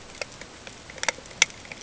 {"label": "ambient", "recorder": "HydroMoth"}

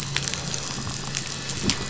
{"label": "anthrophony, boat engine", "recorder": "SoundTrap 500"}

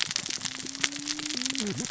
{"label": "biophony, cascading saw", "recorder": "SoundTrap 600 or HydroMoth"}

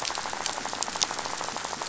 {"label": "biophony, rattle", "recorder": "SoundTrap 500"}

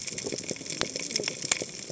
{"label": "biophony, cascading saw", "recorder": "HydroMoth"}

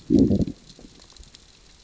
{"label": "biophony, growl", "recorder": "SoundTrap 600 or HydroMoth"}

